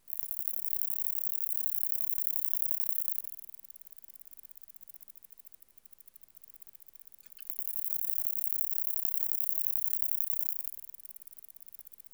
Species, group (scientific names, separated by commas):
Conocephalus fuscus, Orthoptera